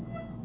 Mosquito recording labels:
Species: Aedes albopictus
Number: one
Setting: insect culture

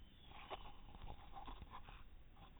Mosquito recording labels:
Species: no mosquito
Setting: cup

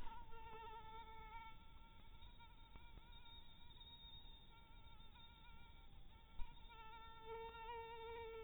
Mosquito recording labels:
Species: mosquito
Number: one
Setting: cup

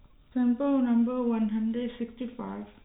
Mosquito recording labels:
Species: no mosquito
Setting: cup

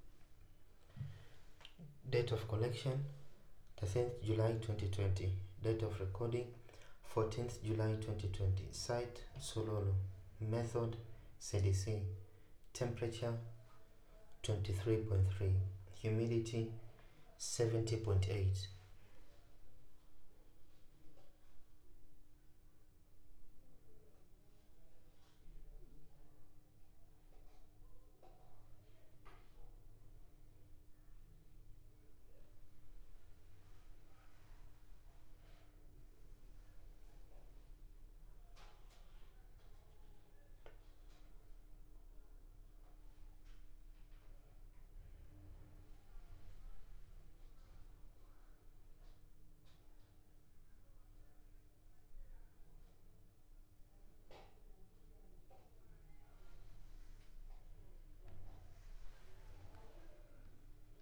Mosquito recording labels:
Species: no mosquito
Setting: cup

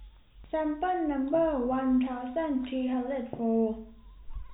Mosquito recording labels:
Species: no mosquito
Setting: cup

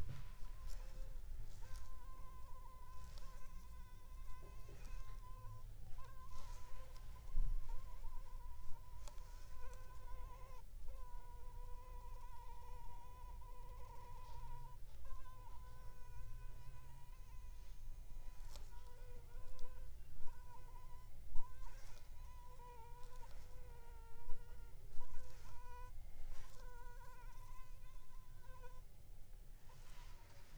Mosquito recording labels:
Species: Anopheles funestus s.s.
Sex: female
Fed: unfed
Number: one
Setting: cup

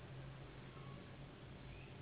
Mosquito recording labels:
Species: Anopheles gambiae s.s.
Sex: female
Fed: unfed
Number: one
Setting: insect culture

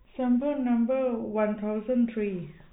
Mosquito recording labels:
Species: no mosquito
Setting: cup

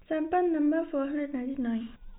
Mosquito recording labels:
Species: no mosquito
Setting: cup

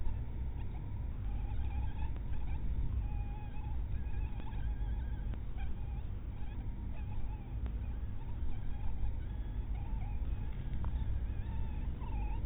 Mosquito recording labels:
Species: mosquito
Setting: cup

